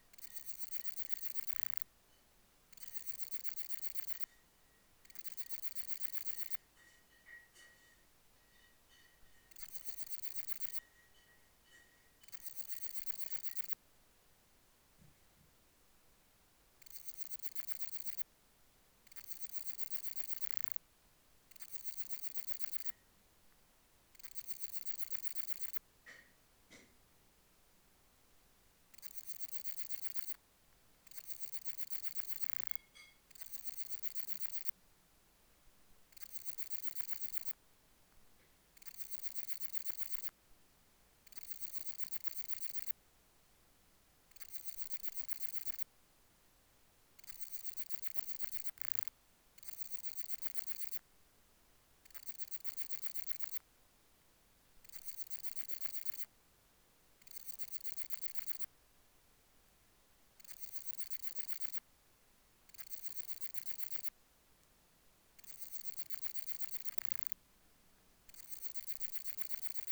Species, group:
Parnassiana coracis, Orthoptera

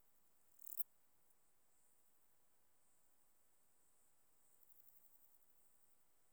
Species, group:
Lluciapomaresius stalii, Orthoptera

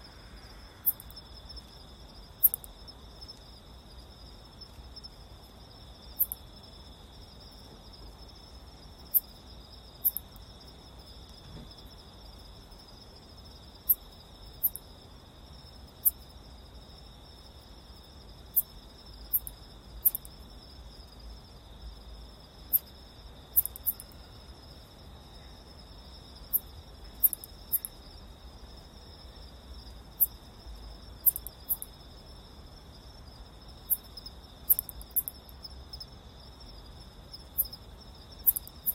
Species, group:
Caedicia simplex, Orthoptera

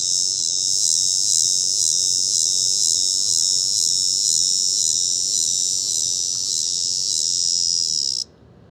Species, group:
Megatibicen dealbatus, Cicadidae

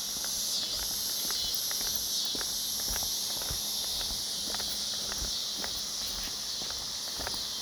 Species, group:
Neotibicen winnemanna, Cicadidae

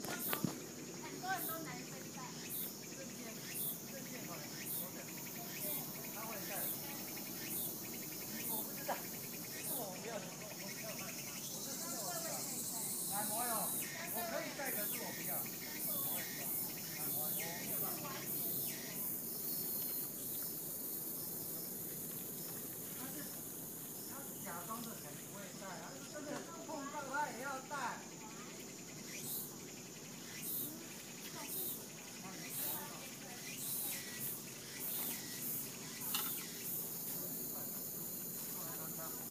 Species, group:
Meimuna opalifera, Cicadidae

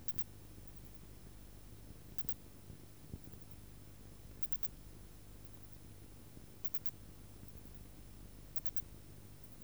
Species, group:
Poecilimon zimmeri, Orthoptera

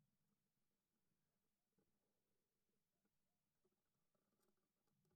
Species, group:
Poecilimon affinis, Orthoptera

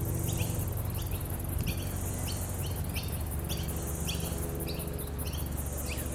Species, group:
Clinopsalta autumna, Cicadidae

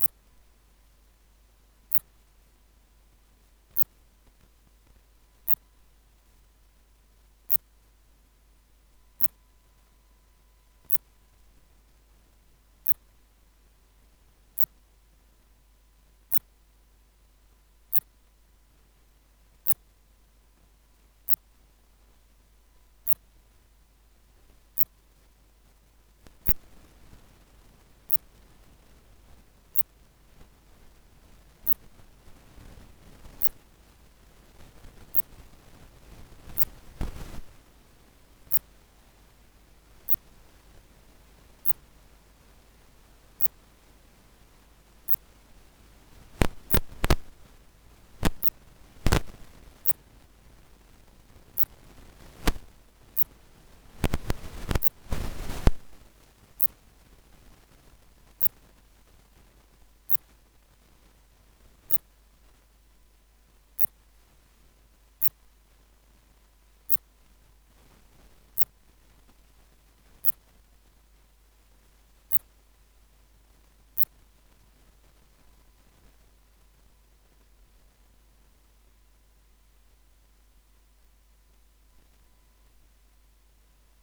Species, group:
Phaneroptera nana, Orthoptera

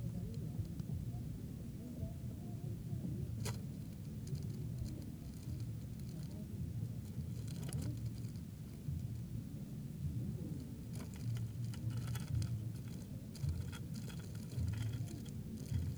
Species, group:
Eumodicogryllus bordigalensis, Orthoptera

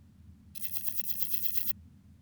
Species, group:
Parnassiana chelmos, Orthoptera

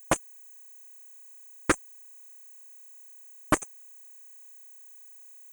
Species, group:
Leptophyes punctatissima, Orthoptera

